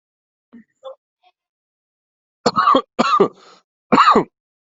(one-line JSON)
{"expert_labels": [{"quality": "good", "cough_type": "dry", "dyspnea": false, "wheezing": false, "stridor": false, "choking": false, "congestion": false, "nothing": true, "diagnosis": "healthy cough", "severity": "pseudocough/healthy cough"}], "age": 42, "gender": "male", "respiratory_condition": false, "fever_muscle_pain": true, "status": "symptomatic"}